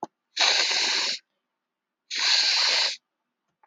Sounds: Sniff